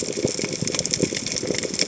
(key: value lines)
label: biophony, chatter
recorder: HydroMoth